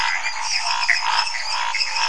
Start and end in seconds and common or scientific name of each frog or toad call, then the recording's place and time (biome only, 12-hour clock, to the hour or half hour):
0.0	1.5	Cuyaba dwarf frog
0.0	2.0	lesser tree frog
0.0	2.0	dwarf tree frog
0.0	2.0	Pithecopus azureus
0.0	2.0	Scinax fuscovarius
Cerrado, ~11pm